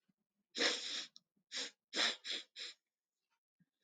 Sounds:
Sniff